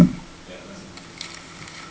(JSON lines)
{"label": "ambient", "recorder": "HydroMoth"}